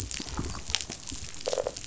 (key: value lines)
label: biophony
recorder: SoundTrap 500